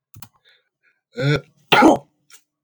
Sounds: Sneeze